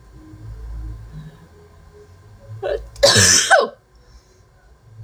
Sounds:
Sneeze